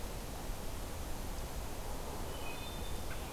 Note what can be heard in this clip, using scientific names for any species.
Hylocichla mustelina